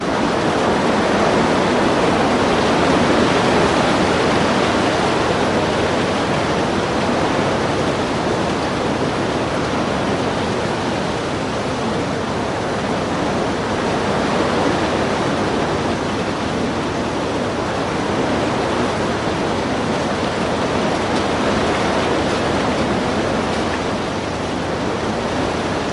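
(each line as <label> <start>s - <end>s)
A loud and continuous wind noise. 0.0s - 25.9s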